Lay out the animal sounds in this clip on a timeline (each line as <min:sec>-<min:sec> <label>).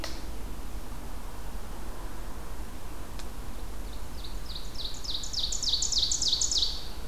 0:03.9-0:07.1 Ovenbird (Seiurus aurocapilla)